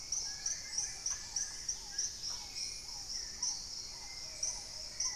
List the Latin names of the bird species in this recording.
Pachysylvia hypoxantha, Trogon melanurus, Turdus hauxwelli, Tangara chilensis, Piprites chloris, Capito auratus